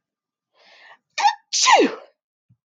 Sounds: Sneeze